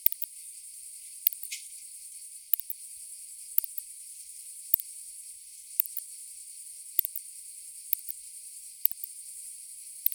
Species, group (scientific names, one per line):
Leptophyes laticauda
Orthoptera